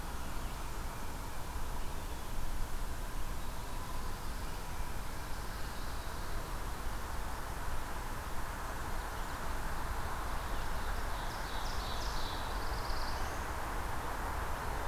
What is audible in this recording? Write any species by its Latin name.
Setophaga pinus, Seiurus aurocapilla, Setophaga caerulescens